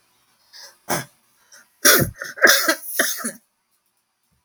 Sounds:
Cough